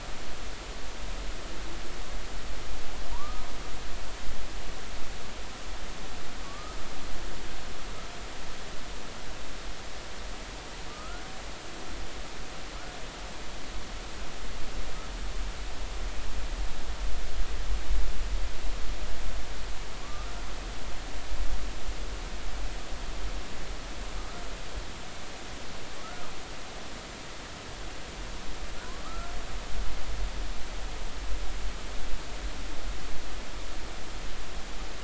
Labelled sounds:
3.1	3.5	humpback whale, 0.90 to 1.3 kHz
6.4	6.8	humpback whale, 1.1 to 1.3 kHz
10.9	11.2	humpback whale, 1.2 to 1.5 kHz
20.0	20.3	humpback whale, 1.1 to 1.3 kHz
29.0	29.3	humpback whale, 1.1 to 1.4 kHz

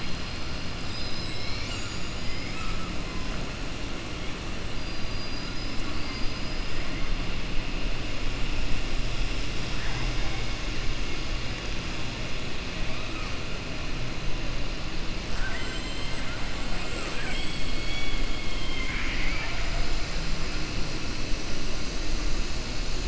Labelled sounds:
2.2	2.9	killer whale, southern resident, 1.2 to 3.1 kHz
15.3	16.2	killer whale, southern resident, 0.68 to 4.1 kHz

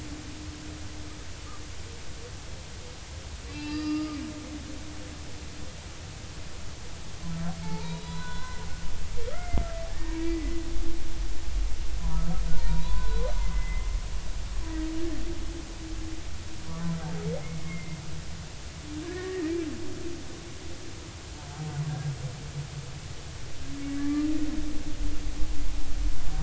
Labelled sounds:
3.5	4.2	humpback whale, 1.1 to 5.0 kHz
7.6	8.6	humpback whale, 0.83 to 4.1 kHz
9.3	10.6	humpback whale, 1.2 to 2.2 kHz
12.5	13.9	humpback whale, 0.90 to 4.1 kHz
17.4	18.0	humpback whale, 2.0 to 2.2 kHz
19.0	19.6	humpback whale, 1.6 to 2.0 kHz
21.9	22.1	humpback whale, 1.6 to 1.7 kHz
24.0	24.3	humpback whale, 1.1 to 1.8 kHz

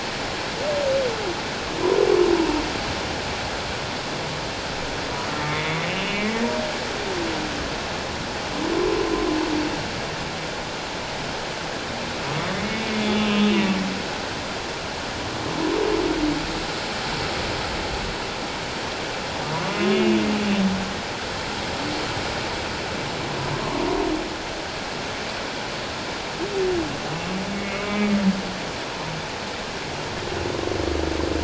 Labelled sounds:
5.5	6.4	humpback whale, 1.9 to 3.1 kHz
12.5	13.7	humpback whale, 2.0 to 3.5 kHz
19.7	20.2	humpback whale, 2.5 to 3.1 kHz
23.5	23.9	humpback whale, 0.91 to 1.2 kHz
27.5	28.1	humpback whale, 1.2 to 2.3 kHz

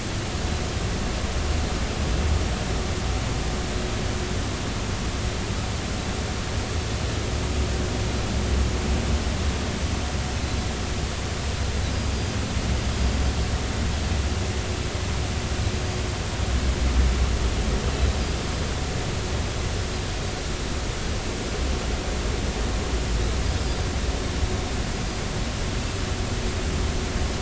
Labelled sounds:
24.9	25.2	Pacific white-sided dolphin, 4.8 to 5.2 kHz

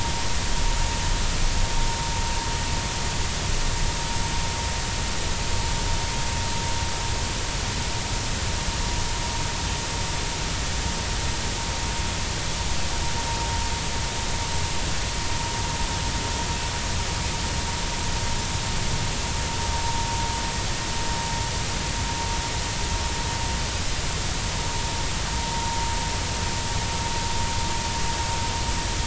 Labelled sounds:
25.5	25.8	vessel noise, 0.90 to 0.96 kHz

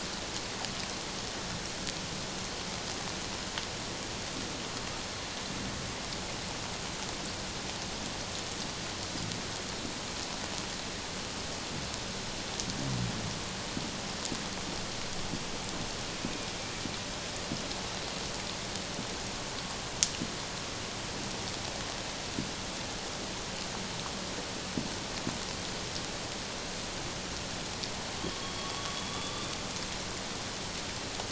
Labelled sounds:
28.4	29.5	killer whale, northern resident, A clan, AA subclan, call N05i, 3.2 to 3.7 kHz

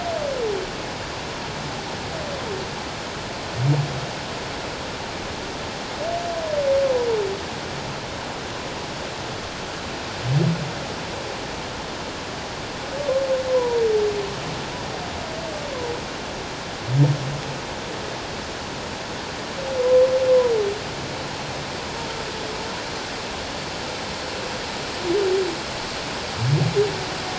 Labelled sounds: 13.5	13.8	humpback whale, 0.91 to 1.1 kHz

